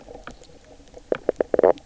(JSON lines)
{"label": "biophony, knock croak", "recorder": "SoundTrap 300"}